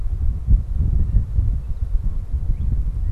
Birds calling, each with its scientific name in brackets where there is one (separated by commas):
Northern Cardinal (Cardinalis cardinalis), Blue Jay (Cyanocitta cristata)